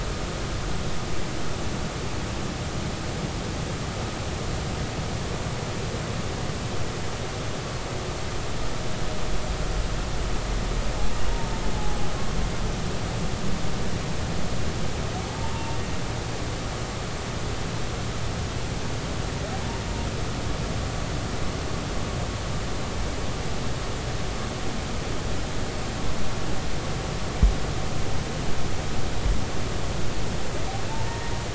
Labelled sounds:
11.7	12.0	humpback whale, 0.80 to 0.86 kHz
15.3	15.8	humpback whale, 0.80 to 1.0 kHz
30.9	31.3	humpback whale, 0.83 to 1.9 kHz

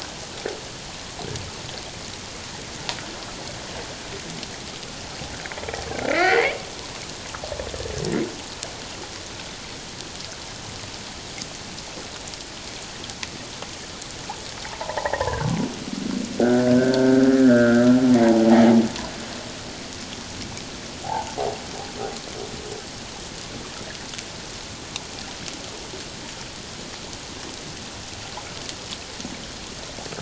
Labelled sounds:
6.1	6.5	humpback whale, 1.7 to 2.7 kHz
14.6	15.5	humpback whale, 0.78 to 2.0 kHz
16.4	18.6	humpback whale, 0.78 to 1.9 kHz
21.0	21.4	humpback whale, 0.78 to 1.0 kHz

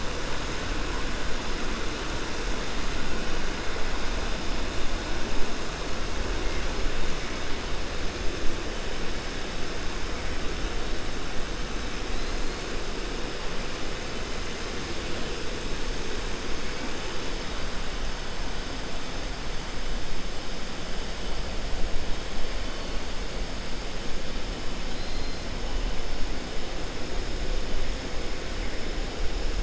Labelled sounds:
12.1	12.6	killer whale, 3.9 to 4.5 kHz
24.9	25.4	killer whale, 3.1 to 4.2 kHz

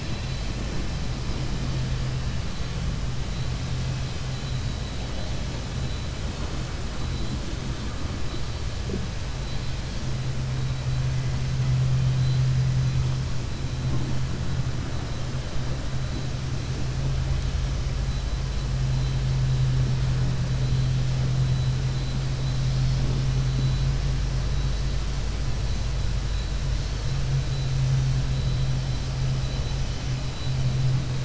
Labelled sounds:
4.4	5.0	vessel noise, 3.0 to 4.9 kHz

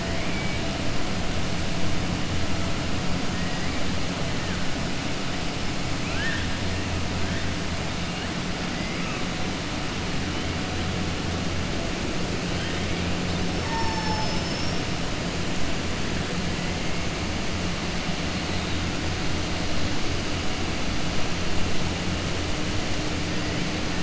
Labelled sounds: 3.4	3.8	killer whale, southern resident, 1.2 to 2.8 kHz
6.0	6.5	killer whale, southern resident, 1.3 to 3.7 kHz
13.6	14.8	killer whale, southern resident, 4.4 to 6.1 kHz

